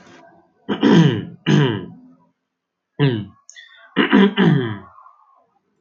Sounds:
Throat clearing